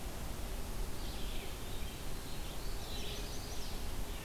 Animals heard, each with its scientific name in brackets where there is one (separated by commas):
Red-eyed Vireo (Vireo olivaceus), Chestnut-sided Warbler (Setophaga pensylvanica), Eastern Wood-Pewee (Contopus virens)